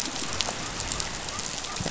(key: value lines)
label: biophony
recorder: SoundTrap 500